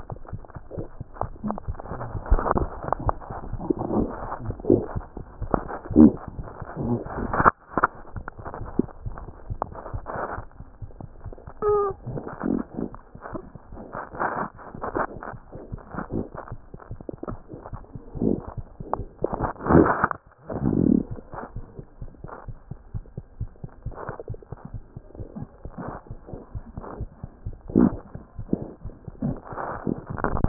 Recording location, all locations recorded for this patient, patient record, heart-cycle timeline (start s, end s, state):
mitral valve (MV)
aortic valve (AV)+mitral valve (MV)
#Age: Infant
#Sex: Male
#Height: 55.0 cm
#Weight: 5.3 kg
#Pregnancy status: False
#Murmur: Absent
#Murmur locations: nan
#Most audible location: nan
#Systolic murmur timing: nan
#Systolic murmur shape: nan
#Systolic murmur grading: nan
#Systolic murmur pitch: nan
#Systolic murmur quality: nan
#Diastolic murmur timing: nan
#Diastolic murmur shape: nan
#Diastolic murmur grading: nan
#Diastolic murmur pitch: nan
#Diastolic murmur quality: nan
#Outcome: Normal
#Campaign: 2015 screening campaign
0.00	21.41	unannotated
21.41	21.56	diastole
21.56	21.64	S1
21.64	21.76	systole
21.76	21.84	S2
21.84	22.00	diastole
22.00	22.10	S1
22.10	22.23	systole
22.23	22.30	S2
22.30	22.47	diastole
22.47	22.58	S1
22.58	22.72	systole
22.72	22.78	S2
22.78	22.93	diastole
22.93	23.01	S1
23.01	23.15	systole
23.15	23.22	S2
23.22	23.39	diastole
23.39	23.50	S1
23.50	23.62	systole
23.62	23.70	S2
23.70	23.86	diastole
23.86	23.96	S1
23.96	24.08	systole
24.08	24.14	S2
24.14	24.29	diastole
24.29	24.37	S1
24.37	24.51	systole
24.51	24.58	S2
24.58	24.73	diastole
24.73	24.82	S1
24.82	24.96	systole
24.96	25.04	S2
25.04	25.20	diastole
25.20	25.27	S1
25.27	25.41	systole
25.41	25.49	S2
25.49	25.63	diastole
25.63	25.73	S1
25.73	25.85	systole
25.85	25.94	S2
25.94	26.07	diastole
26.07	26.17	S1
26.17	26.31	systole
26.31	26.38	S2
26.38	26.52	diastole
26.52	26.63	S1
26.63	26.75	systole
26.75	26.82	S2
26.82	26.99	diastole
26.99	27.10	S1
27.10	27.22	systole
27.22	27.30	S2
27.30	27.45	diastole
27.45	27.53	S1
27.53	30.48	unannotated